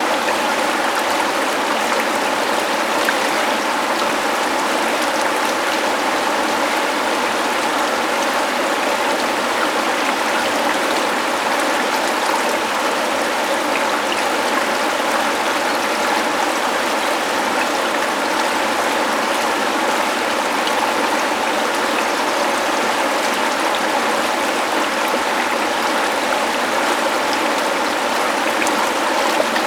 What liquid is making the sound?
water